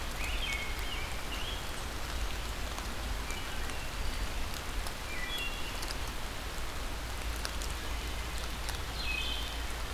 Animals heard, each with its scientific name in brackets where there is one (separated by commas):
Rose-breasted Grosbeak (Pheucticus ludovicianus), Wood Thrush (Hylocichla mustelina), Ovenbird (Seiurus aurocapilla)